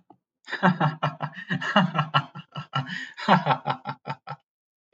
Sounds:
Laughter